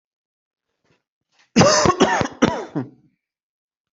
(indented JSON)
{
  "expert_labels": [
    {
      "quality": "ok",
      "cough_type": "dry",
      "dyspnea": false,
      "wheezing": false,
      "stridor": false,
      "choking": false,
      "congestion": false,
      "nothing": true,
      "diagnosis": "healthy cough",
      "severity": "pseudocough/healthy cough"
    }
  ],
  "age": 30,
  "gender": "male",
  "respiratory_condition": false,
  "fever_muscle_pain": false,
  "status": "symptomatic"
}